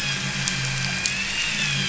{"label": "anthrophony, boat engine", "recorder": "SoundTrap 500"}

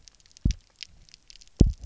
{"label": "biophony, double pulse", "recorder": "SoundTrap 300"}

